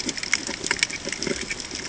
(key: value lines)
label: ambient
recorder: HydroMoth